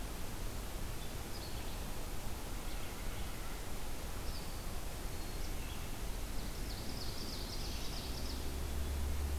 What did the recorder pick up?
Red-eyed Vireo, Ovenbird